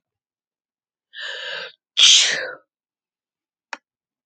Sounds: Sneeze